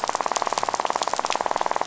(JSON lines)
{"label": "biophony, rattle", "recorder": "SoundTrap 500"}